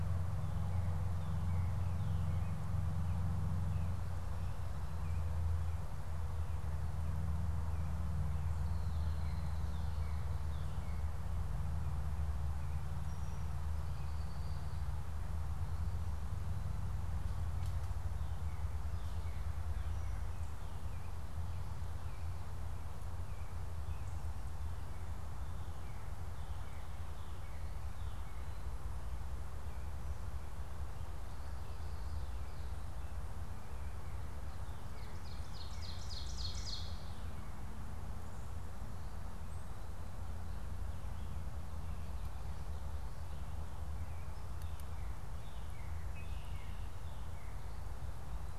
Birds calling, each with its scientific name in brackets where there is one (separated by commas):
American Robin (Turdus migratorius), Ovenbird (Seiurus aurocapilla), Red-winged Blackbird (Agelaius phoeniceus), Northern Cardinal (Cardinalis cardinalis)